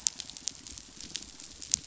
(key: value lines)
label: biophony, croak
recorder: SoundTrap 500